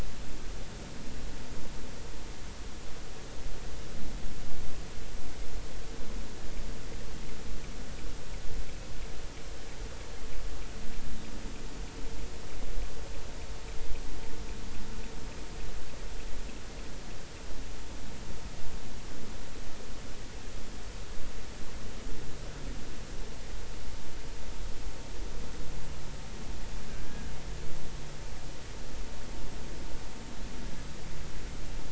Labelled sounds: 26.9	27.3	killer whale, offshore, 1.5 to 1.8 kHz

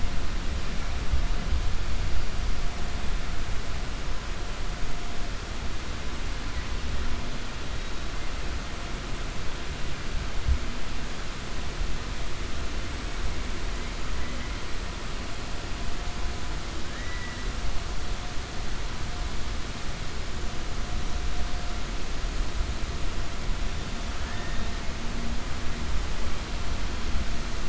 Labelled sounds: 16.9	17.4	killer whale, 1.6 to 2.0 kHz
24.2	24.7	killer whale, 0.91 to 2.0 kHz

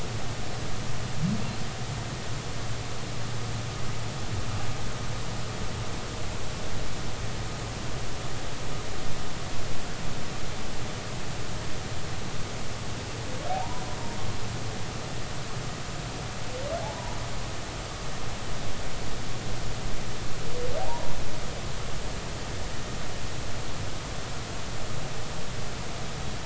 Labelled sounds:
13.5	13.9	humpback whale, 0.80 to 1.1 kHz
16.8	17.2	humpback whale, 0.80 to 1.0 kHz
20.8	21.1	humpback whale, 0.80 to 1.1 kHz

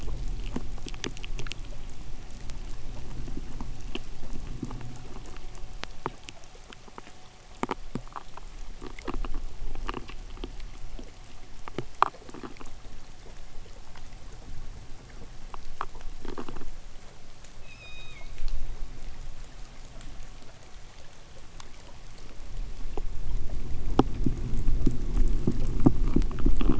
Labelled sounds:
17.5	18.4	killer whale, K pod, 1.8 to 8.0 kHz
22.6	26.7	noise likely from the mooring, 0 to 3.7 kHz

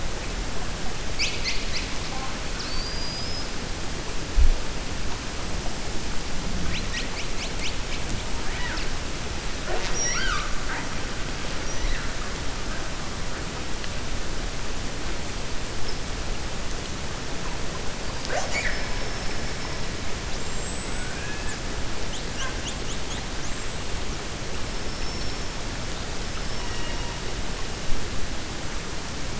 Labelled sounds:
26.5	27.1	killer whale, 0.93 to 3.8 kHz

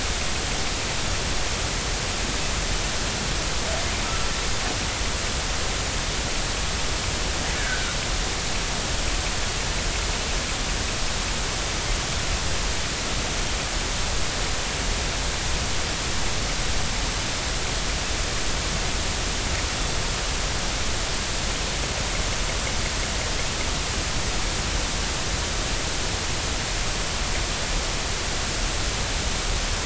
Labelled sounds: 7.6	7.9	killer whale, northern resident, G clan, 1.4 to 1.8 kHz

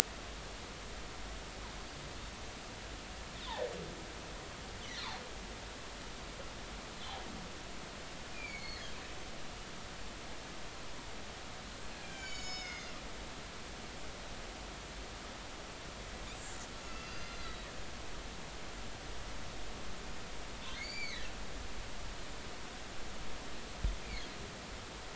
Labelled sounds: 8.3	8.9	humpback whale, 2.1 to 4.4 kHz
12.1	12.9	humpback whale, 1.5 to 7.1 kHz
16.8	17.7	humpback whale, 2.6 to 6.3 kHz
20.8	21.3	humpback whale, 1.6 to 7.1 kHz

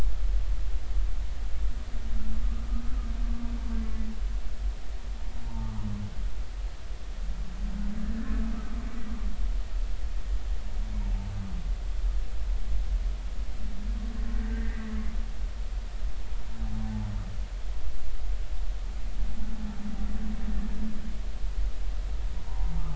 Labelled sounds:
5.5	5.9	humpback whale, 0.83 to 1.2 kHz
14.5	14.9	humpback whale, 1.5 to 2.1 kHz
16.8	17.1	humpback whale, 0.80 to 0.99 kHz
22.5	22.7	humpback whale, 0.80 to 1.1 kHz

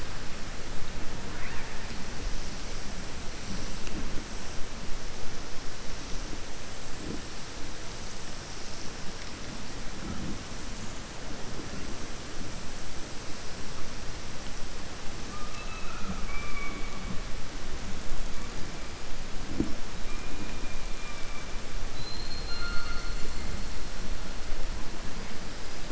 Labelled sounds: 20.0	21.5	killer whale, southern resident, 1.6 to 3.0 kHz

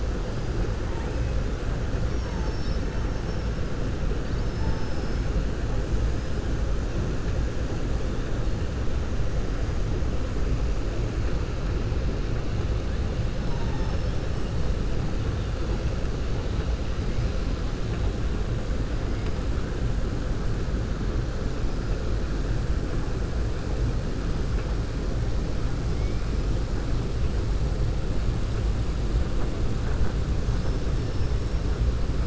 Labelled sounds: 2.0	2.9	killer whale, southern resident, 3.7 to 6.4 kHz
4.2	5.2	killer whale, southern resident, 4.5 to 5.3 kHz
30.4	30.8	killer whale, southern resident, 4.6 to 6.7 kHz

